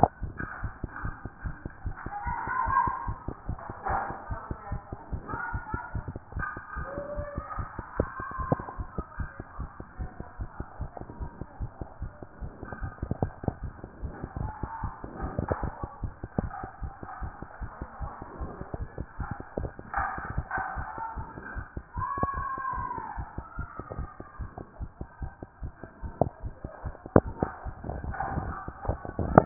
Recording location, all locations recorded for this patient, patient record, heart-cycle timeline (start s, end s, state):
mitral valve (MV)
aortic valve (AV)+pulmonary valve (PV)+tricuspid valve (TV)+mitral valve (MV)
#Age: Child
#Sex: Female
#Height: 103.0 cm
#Weight: 20.2 kg
#Pregnancy status: False
#Murmur: Absent
#Murmur locations: nan
#Most audible location: nan
#Systolic murmur timing: nan
#Systolic murmur shape: nan
#Systolic murmur grading: nan
#Systolic murmur pitch: nan
#Systolic murmur quality: nan
#Diastolic murmur timing: nan
#Diastolic murmur shape: nan
#Diastolic murmur grading: nan
#Diastolic murmur pitch: nan
#Diastolic murmur quality: nan
#Outcome: Normal
#Campaign: 2014 screening campaign
0.00	8.70	unannotated
8.70	8.78	diastole
8.78	8.88	S1
8.88	8.96	systole
8.96	9.04	S2
9.04	9.18	diastole
9.18	9.30	S1
9.30	9.38	systole
9.38	9.46	S2
9.46	9.58	diastole
9.58	9.70	S1
9.70	9.78	systole
9.78	9.86	S2
9.86	10.00	diastole
10.00	10.10	S1
10.10	10.18	systole
10.18	10.26	S2
10.26	10.38	diastole
10.38	10.48	S1
10.48	10.58	systole
10.58	10.66	S2
10.66	10.80	diastole
10.80	10.90	S1
10.90	10.98	systole
10.98	11.06	S2
11.06	11.20	diastole
11.20	11.30	S1
11.30	11.40	systole
11.40	11.46	S2
11.46	11.60	diastole
11.60	11.69	S1
11.69	11.80	systole
11.80	11.86	S2
11.86	12.01	diastole
12.01	29.46	unannotated